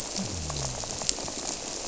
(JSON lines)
{"label": "biophony", "recorder": "SoundTrap 300"}